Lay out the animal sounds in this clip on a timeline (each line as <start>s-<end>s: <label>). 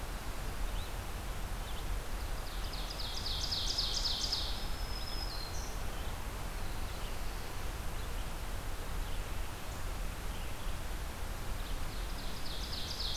0.0s-13.2s: Red-eyed Vireo (Vireo olivaceus)
2.4s-4.7s: Ovenbird (Seiurus aurocapilla)
4.2s-6.1s: Black-throated Green Warbler (Setophaga virens)
11.6s-13.2s: Ovenbird (Seiurus aurocapilla)